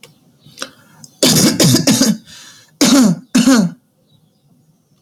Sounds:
Cough